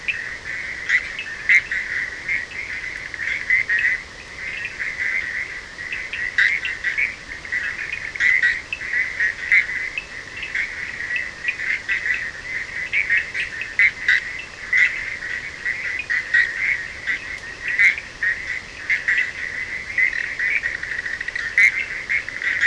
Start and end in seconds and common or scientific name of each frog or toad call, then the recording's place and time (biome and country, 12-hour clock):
0.0	22.6	Bischoff's tree frog
0.0	22.6	Cochran's lime tree frog
7.1	7.5	Leptodactylus latrans
17.0	17.5	Leptodactylus latrans
Atlantic Forest, Brazil, 4:30am